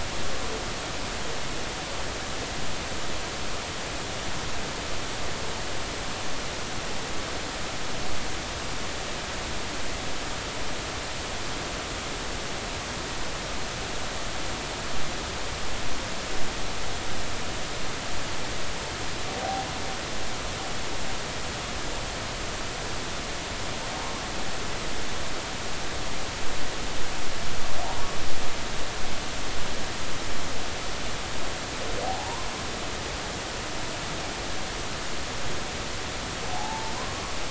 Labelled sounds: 19.3	19.7	humpback whale, 0.80 to 0.86 kHz
32.0	32.5	humpback whale, 0.80 to 1.1 kHz
36.5	37.2	humpback whale, 0.80 to 1.2 kHz

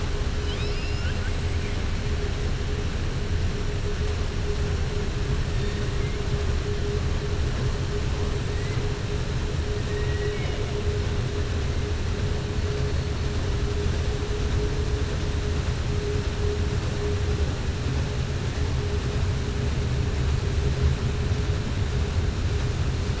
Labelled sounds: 0.3	1.3	killer whale, southern resident, 1.4 to 5.5 kHz
9.8	10.6	killer whale, southern resident, 1.0 to 3.8 kHz

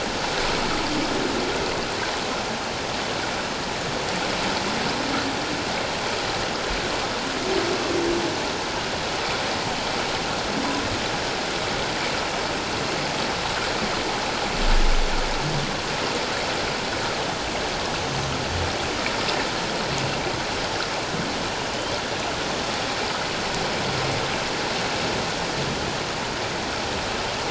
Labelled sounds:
21.7	22.0	humpback whale, 2.9 to 3.2 kHz

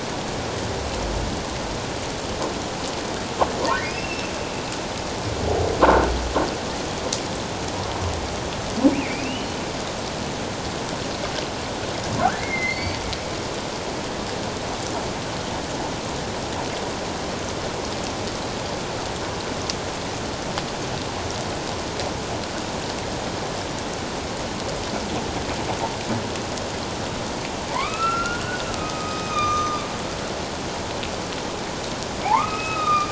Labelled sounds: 3.9	4.3	humpback whale, 2.3 to 2.8 kHz
8.9	9.6	humpback whale, 2.1 to 3.1 kHz
12.2	13.1	humpback whale, 1.2 to 4.6 kHz
27.7	29.9	humpback whale, 0.84 to 6.3 kHz
32.2	33.1	humpback whale, 0.78 to 5.3 kHz

